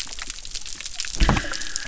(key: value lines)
label: biophony
recorder: SoundTrap 300